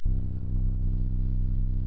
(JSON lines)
{"label": "anthrophony, boat engine", "recorder": "SoundTrap 300"}